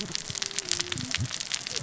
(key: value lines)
label: biophony, cascading saw
recorder: SoundTrap 600 or HydroMoth